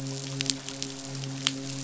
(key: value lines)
label: biophony, midshipman
recorder: SoundTrap 500